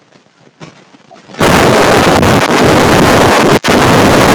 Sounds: Cough